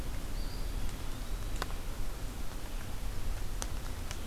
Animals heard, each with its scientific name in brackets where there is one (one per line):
Eastern Wood-Pewee (Contopus virens)